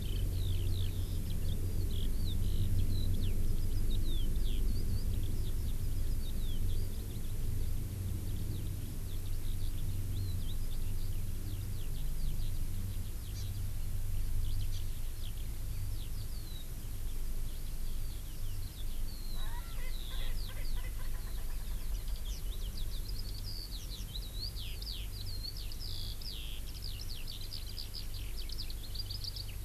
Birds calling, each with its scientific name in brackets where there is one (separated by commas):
Hawaii Amakihi (Chlorodrepanis virens), Eurasian Skylark (Alauda arvensis), Erckel's Francolin (Pternistis erckelii)